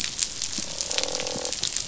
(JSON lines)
{"label": "biophony, croak", "recorder": "SoundTrap 500"}